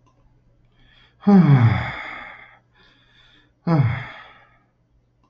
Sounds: Sigh